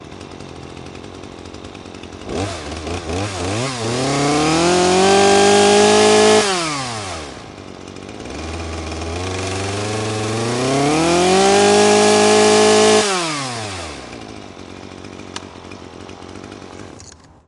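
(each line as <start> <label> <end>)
0.0 An engine is steadily clicking. 2.2
2.3 An engine sound grows louder, then weakens, and intensifies again, resembling a grass trimmer being used outdoors. 17.2
15.3 Something snaps. 15.5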